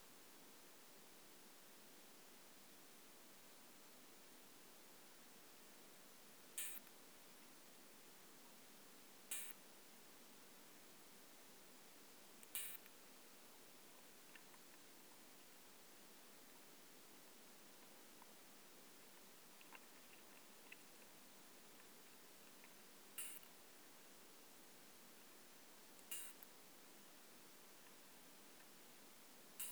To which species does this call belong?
Isophya modestior